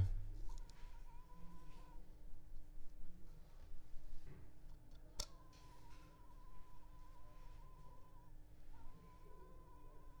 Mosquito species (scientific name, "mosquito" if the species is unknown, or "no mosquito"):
Culex pipiens complex